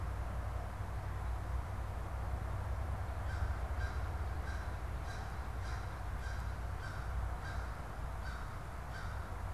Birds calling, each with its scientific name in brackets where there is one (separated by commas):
American Crow (Corvus brachyrhynchos)